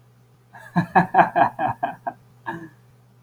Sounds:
Laughter